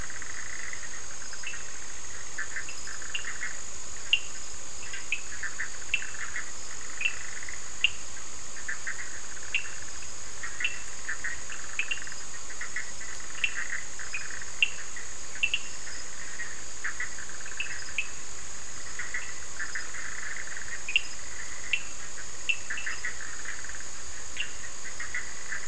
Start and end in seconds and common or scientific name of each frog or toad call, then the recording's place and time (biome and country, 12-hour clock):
0.0	25.6	Bischoff's tree frog
3.1	8.1	Cochran's lime tree frog
9.5	9.7	Cochran's lime tree frog
10.6	15.8	Cochran's lime tree frog
17.5	18.2	Cochran's lime tree frog
20.8	22.6	Cochran's lime tree frog
24.3	24.6	Cochran's lime tree frog
Atlantic Forest, Brazil, 10:15pm